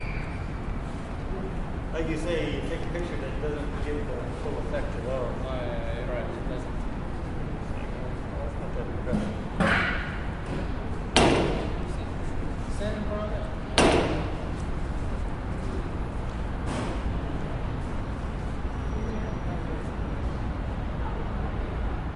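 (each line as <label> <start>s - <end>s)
The wind is blowing smoothly with a soft, muffled noise in the distance. 0.0s - 22.1s
A person is speaking softly in English with someone, with muffled echoes from the buildings. 1.8s - 6.4s
A person is speaking softly in English with muffled echoes from the buildings. 6.4s - 9.5s
Footsteps on a metallic plate. 9.0s - 9.3s
A person steps on a metal plate, producing a muffled echo from the buildings. 9.5s - 10.1s
A person is speaking softly in English with muffled echoes from the buildings. 10.1s - 22.1s
Footsteps on a metal plate create a metallic echo. 11.1s - 12.0s
A person is speaking softly in English, with muffled echoes from nearby buildings. 12.7s - 13.5s
Footsteps on a metal plate create a metallic echo. 13.7s - 14.5s
Footsteps on a metallic plate. 16.7s - 17.1s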